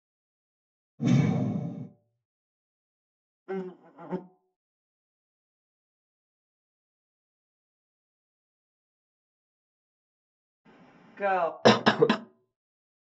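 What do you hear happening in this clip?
At 0.98 seconds, a whoosh is heard. Then, at 3.46 seconds, the faint sound of an insect comes through. At 11.16 seconds, a voice says "Go." Next, at 11.62 seconds, someone coughs.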